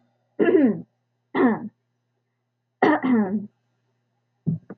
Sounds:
Throat clearing